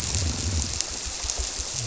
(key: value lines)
label: biophony, squirrelfish (Holocentrus)
recorder: SoundTrap 300

label: biophony
recorder: SoundTrap 300